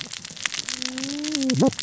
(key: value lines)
label: biophony, cascading saw
recorder: SoundTrap 600 or HydroMoth